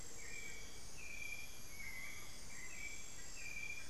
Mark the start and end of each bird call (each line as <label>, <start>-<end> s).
Amazonian Motmot (Momotus momota), 0.0-1.1 s
Hauxwell's Thrush (Turdus hauxwelli), 0.0-3.9 s
Screaming Piha (Lipaugus vociferans), 1.8-2.4 s